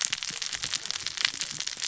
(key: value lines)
label: biophony, cascading saw
recorder: SoundTrap 600 or HydroMoth